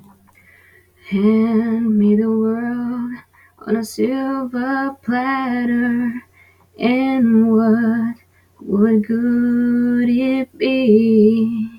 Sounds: Sigh